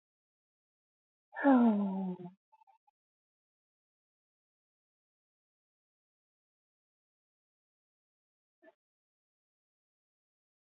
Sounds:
Sigh